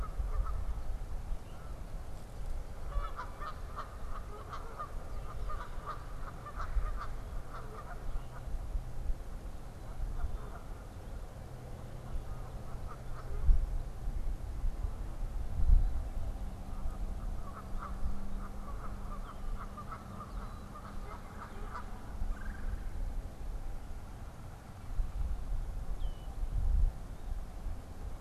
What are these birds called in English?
Canada Goose, Red-bellied Woodpecker, Red-winged Blackbird